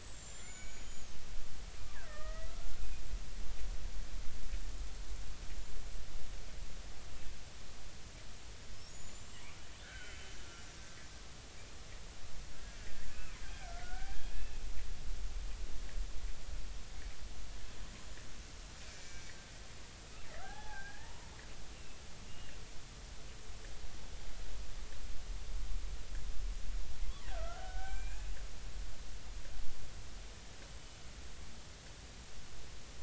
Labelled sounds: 0.1	1.2	killer whale, Bigg's (transient), 1.4 to 7.6 kHz
2.0	2.8	killer whale, Bigg's (transient), 1.1 to 2.0 kHz
8.9	10.2	killer whale, Bigg's (transient), 1.4 to 7.6 kHz
12.5	14.6	killer whale, Bigg's (transient), 1.3 to 2.7 kHz
18.9	19.3	killer whale, Bigg's (transient), 2.2 to 5.9 kHz
20.4	21.3	killer whale, Bigg's (transient), 0.80 to 1.9 kHz
21.7	22.6	killer whale, Bigg's (transient), 2.5 to 2.9 kHz
27.2	28.3	killer whale, Bigg's (transient), 0.80 to 2.6 kHz

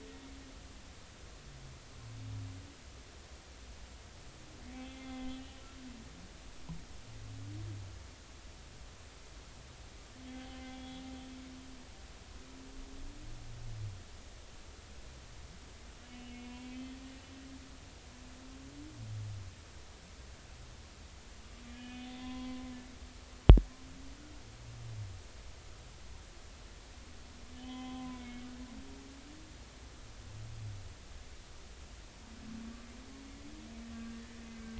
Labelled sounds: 4.8	5.3	humpback whale, 2.0 to 3.5 kHz
10.3	11.0	humpback whale, 0.80 to 3.5 kHz
16.0	16.9	humpback whale, 2.5 to 3.0 kHz
21.7	22.7	humpback whale, 0.96 to 3.6 kHz
27.6	28.4	humpback whale, 0.80 to 3.4 kHz
33.9	34.7	humpback whale, 1.5 to 1.7 kHz

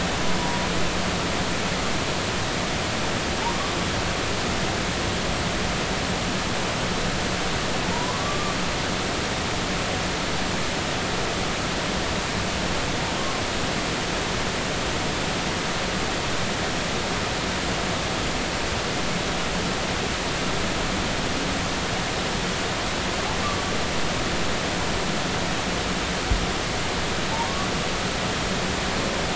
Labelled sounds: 7.9	8.5	humpback whale, 0.83 to 1.2 kHz
28.3	28.7	humpback whale, 0.83 to 1.3 kHz

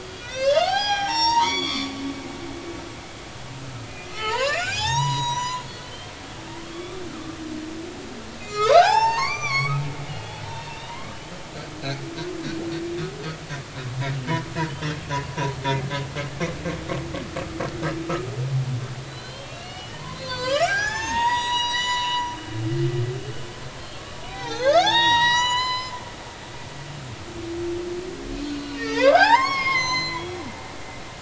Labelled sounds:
0.0	1.9	humpback whale, 0.80 to 7.5 kHz
3.8	6.1	humpback whale, 0.80 to 7.7 kHz
6.7	7.4	humpback whale, 1.1 to 3.5 kHz
8.4	11.4	humpback whale, 0.80 to 8.0 kHz
14.7	15.6	humpback whale, 0.80 to 3.3 kHz
19.1	22.3	humpback whale, 0.80 to 7.9 kHz
23.7	26.0	humpback whale, 0.80 to 7.9 kHz
28.6	31.1	humpback whale, 0.80 to 7.6 kHz

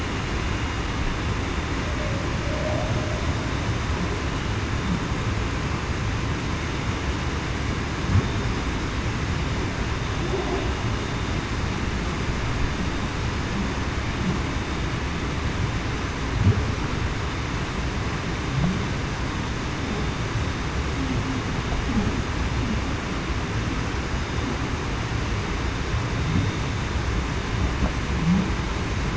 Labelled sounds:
2.4	3.0	humpback whale, 0.54 to 0.73 kHz

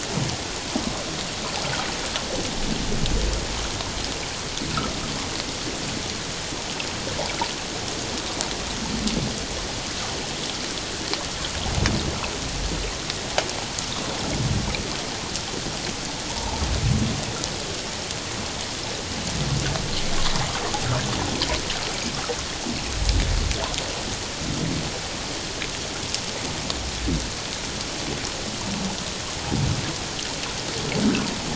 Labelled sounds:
16.3	16.6	humpback whale, 0.81 to 1.0 kHz

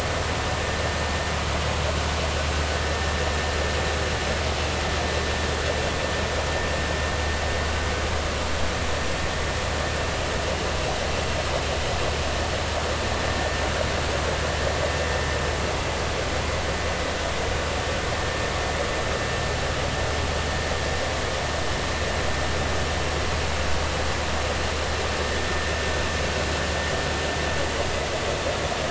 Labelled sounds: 2.8	3.1	vessel noise, 1.7 to 1.8 kHz

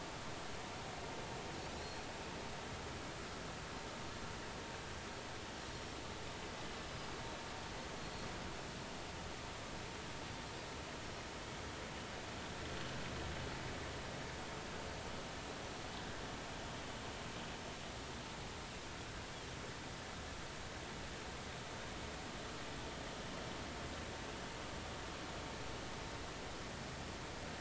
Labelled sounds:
1.8	2.0	Pacific white-sided dolphin, 4.0 to 4.4 kHz
6.7	7.1	Pacific white-sided dolphin, 4.9 to 5.3 kHz

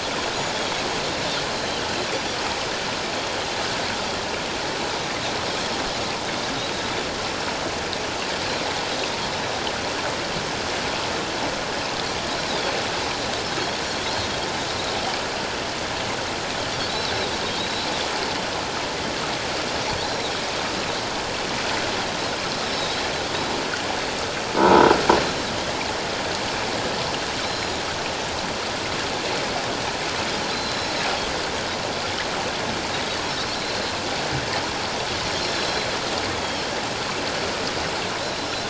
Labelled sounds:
16.9	17.9	Pacific white-sided dolphin, 3.5 to 5.5 kHz
20.0	20.3	Pacific white-sided dolphin, 3.7 to 4.3 kHz
22.7	23.1	Pacific white-sided dolphin, 3.6 to 4.0 kHz
24.6	24.9	croaking sound likely from a nearby submerged object, 0.84 to 1.0 kHz
27.4	27.8	Pacific white-sided dolphin, 3.7 to 7.1 kHz
30.5	31.0	Pacific white-sided dolphin, 4.0 to 5.4 kHz
32.9	33.5	Pacific white-sided dolphin, 3.7 to 5.5 kHz
35.4	35.7	Pacific white-sided dolphin, 4.0 to 5.6 kHz

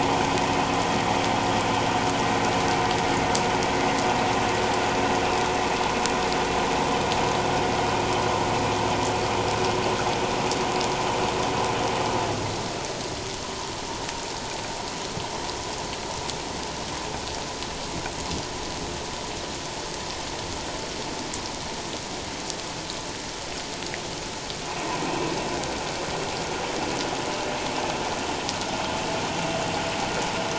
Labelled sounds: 25.1	25.3	vessel noise, 2.5 to 2.8 kHz

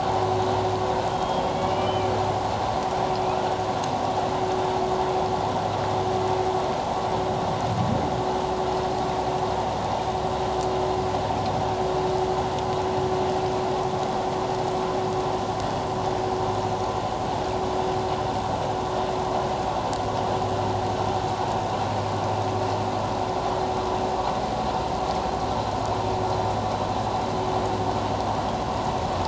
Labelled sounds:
1.1	2.1	humpback whale, 2.1 to 3.4 kHz

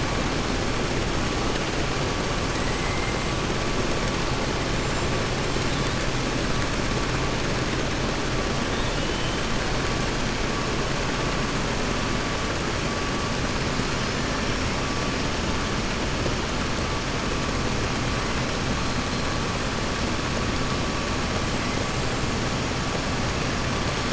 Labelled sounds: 8.7	9.3	killer whale, 2.9 to 3.8 kHz

